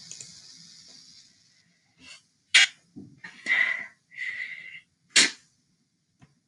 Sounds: Sneeze